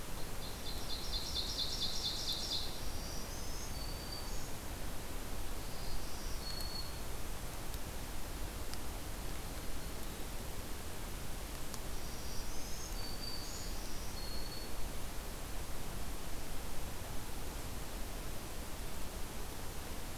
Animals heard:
Black-throated Green Warbler (Setophaga virens), Ovenbird (Seiurus aurocapilla)

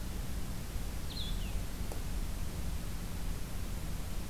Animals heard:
Blue-headed Vireo (Vireo solitarius)

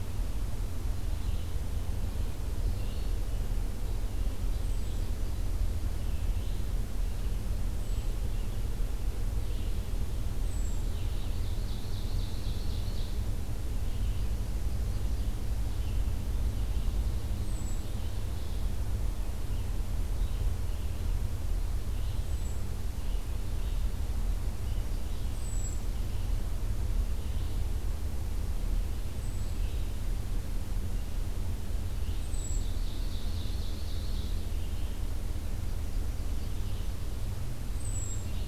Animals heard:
Red-eyed Vireo (Vireo olivaceus), American Goldfinch (Spinus tristis), Hermit Thrush (Catharus guttatus), Ovenbird (Seiurus aurocapilla)

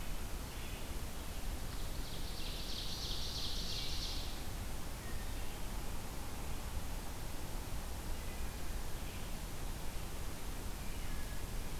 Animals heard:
Ovenbird (Seiurus aurocapilla), Wood Thrush (Hylocichla mustelina)

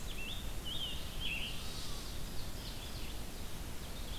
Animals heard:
Scarlet Tanager (Piranga olivacea), Red-eyed Vireo (Vireo olivaceus), Ovenbird (Seiurus aurocapilla), White-tailed Deer (Odocoileus virginianus)

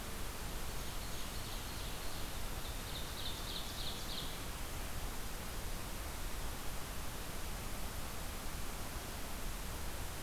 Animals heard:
Ovenbird (Seiurus aurocapilla), Blackburnian Warbler (Setophaga fusca)

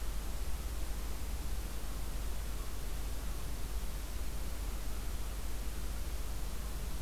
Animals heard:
American Crow (Corvus brachyrhynchos)

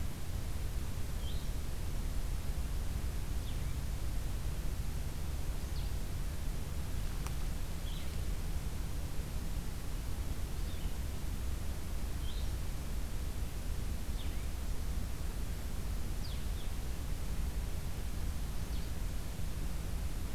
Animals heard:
Blue-headed Vireo (Vireo solitarius)

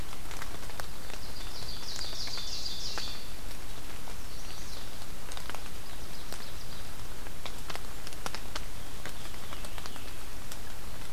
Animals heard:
Veery (Catharus fuscescens), Chestnut-sided Warbler (Setophaga pensylvanica), Ovenbird (Seiurus aurocapilla)

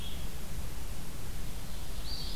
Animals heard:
Red-eyed Vireo (Vireo olivaceus), Eastern Wood-Pewee (Contopus virens), Ovenbird (Seiurus aurocapilla)

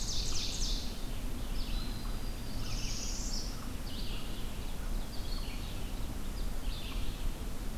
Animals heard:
Black-throated Green Warbler (Setophaga virens), Northern Parula (Setophaga americana), Red-eyed Vireo (Vireo olivaceus), Ovenbird (Seiurus aurocapilla)

